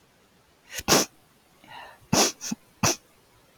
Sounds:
Sniff